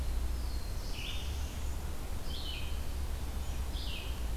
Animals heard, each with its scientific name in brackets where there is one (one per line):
Black-throated Blue Warbler (Setophaga caerulescens)
Red-eyed Vireo (Vireo olivaceus)